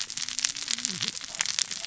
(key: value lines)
label: biophony, cascading saw
recorder: SoundTrap 600 or HydroMoth